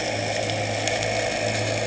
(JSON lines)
{"label": "anthrophony, boat engine", "recorder": "HydroMoth"}